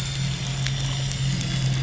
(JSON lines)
{"label": "anthrophony, boat engine", "recorder": "SoundTrap 500"}